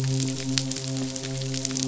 {"label": "biophony, midshipman", "recorder": "SoundTrap 500"}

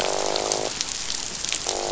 {"label": "biophony, croak", "recorder": "SoundTrap 500"}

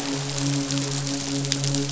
{"label": "biophony, midshipman", "recorder": "SoundTrap 500"}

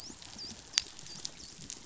{"label": "biophony, dolphin", "recorder": "SoundTrap 500"}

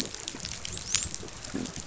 {"label": "biophony, dolphin", "recorder": "SoundTrap 500"}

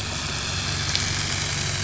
{"label": "anthrophony, boat engine", "recorder": "SoundTrap 500"}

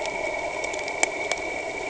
{"label": "anthrophony, boat engine", "recorder": "HydroMoth"}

